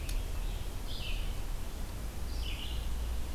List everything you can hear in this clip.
American Robin, Red-eyed Vireo